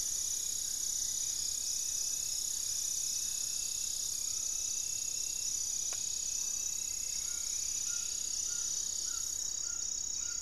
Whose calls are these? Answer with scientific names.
Xiphorhynchus guttatus, unidentified bird, Xiphorhynchus obsoletus, Trogon ramonianus